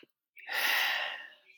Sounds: Sigh